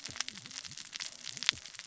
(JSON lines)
{"label": "biophony, cascading saw", "recorder": "SoundTrap 600 or HydroMoth"}